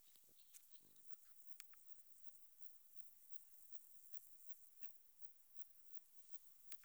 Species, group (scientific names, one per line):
Metrioptera saussuriana
Orthoptera